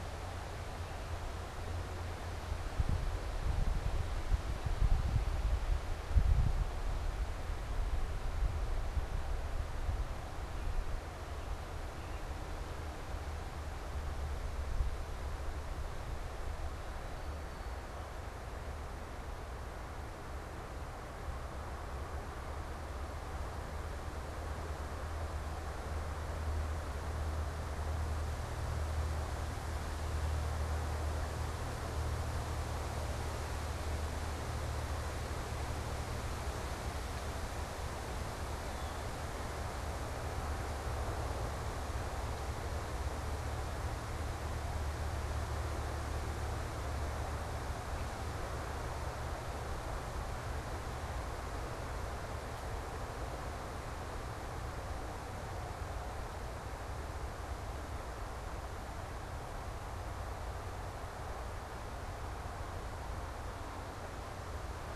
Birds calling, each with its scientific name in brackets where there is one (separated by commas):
unidentified bird, Blue Jay (Cyanocitta cristata)